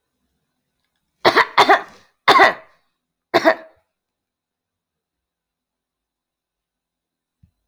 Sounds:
Cough